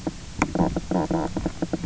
{"label": "biophony, knock croak", "recorder": "SoundTrap 300"}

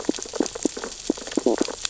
{"label": "biophony, stridulation", "recorder": "SoundTrap 600 or HydroMoth"}
{"label": "biophony, sea urchins (Echinidae)", "recorder": "SoundTrap 600 or HydroMoth"}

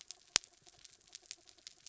{"label": "anthrophony, mechanical", "recorder": "SoundTrap 300"}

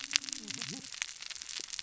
{"label": "biophony, cascading saw", "recorder": "SoundTrap 600 or HydroMoth"}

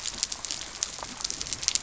{"label": "biophony", "recorder": "SoundTrap 300"}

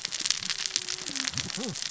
{"label": "biophony, cascading saw", "recorder": "SoundTrap 600 or HydroMoth"}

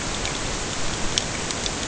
{"label": "ambient", "recorder": "HydroMoth"}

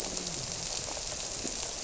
{"label": "biophony, grouper", "recorder": "SoundTrap 300"}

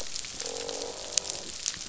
{"label": "biophony, croak", "recorder": "SoundTrap 500"}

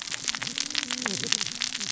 {"label": "biophony, cascading saw", "recorder": "SoundTrap 600 or HydroMoth"}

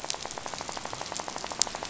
{"label": "biophony, rattle", "recorder": "SoundTrap 500"}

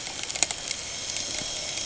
{"label": "anthrophony, boat engine", "recorder": "HydroMoth"}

